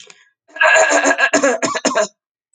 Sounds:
Cough